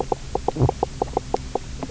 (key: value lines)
label: biophony, knock croak
recorder: SoundTrap 300